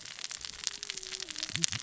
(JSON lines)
{"label": "biophony, cascading saw", "recorder": "SoundTrap 600 or HydroMoth"}